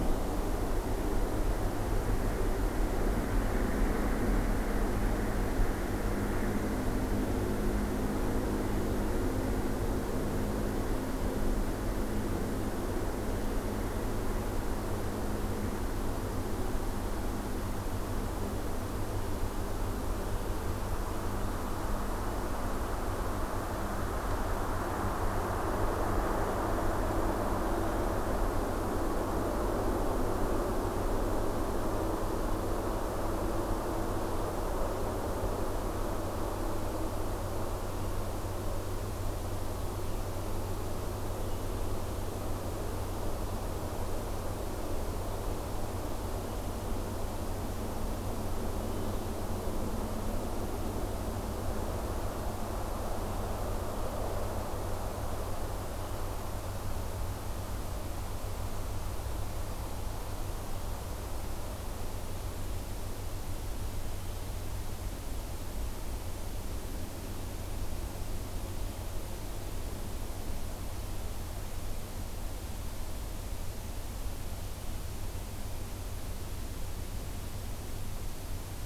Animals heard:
forest ambience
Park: Acadia National Park